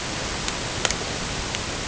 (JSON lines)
{"label": "ambient", "recorder": "HydroMoth"}